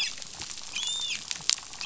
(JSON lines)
{"label": "biophony, dolphin", "recorder": "SoundTrap 500"}